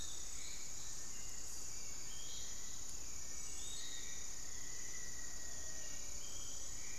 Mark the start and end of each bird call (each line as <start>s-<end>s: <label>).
0.0s-3.8s: Little Tinamou (Crypturellus soui)
0.0s-7.0s: Hauxwell's Thrush (Turdus hauxwelli)
0.0s-7.0s: Piratic Flycatcher (Legatus leucophaius)
3.6s-6.2s: Black-faced Antthrush (Formicarius analis)